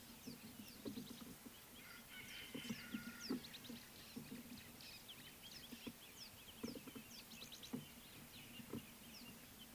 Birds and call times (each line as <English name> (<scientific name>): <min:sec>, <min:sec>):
Rattling Cisticola (Cisticola chiniana): 0:07.4